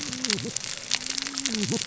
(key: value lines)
label: biophony, cascading saw
recorder: SoundTrap 600 or HydroMoth